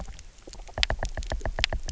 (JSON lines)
{"label": "biophony, knock", "recorder": "SoundTrap 300"}